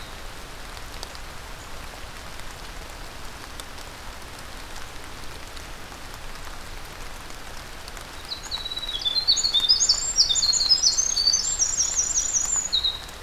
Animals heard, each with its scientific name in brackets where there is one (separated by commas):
Winter Wren (Troglodytes hiemalis), Ovenbird (Seiurus aurocapilla)